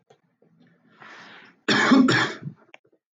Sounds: Cough